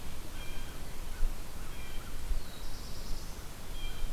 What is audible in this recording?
Blue Jay, American Crow, Black-throated Blue Warbler